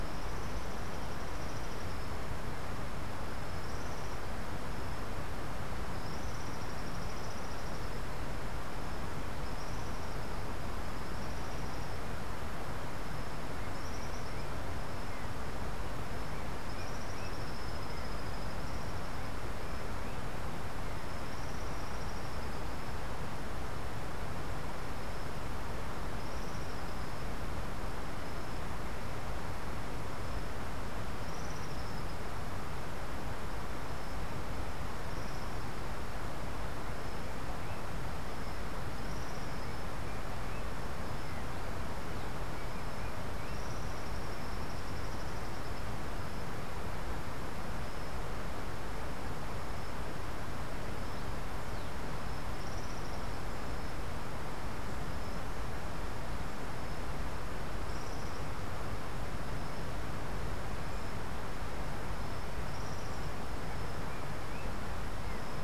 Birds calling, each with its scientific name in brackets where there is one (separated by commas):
Yellow-backed Oriole (Icterus chrysater), Tropical Kingbird (Tyrannus melancholicus)